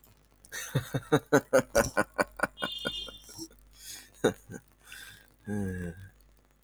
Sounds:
Laughter